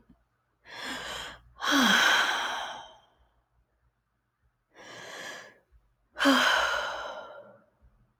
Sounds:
Sigh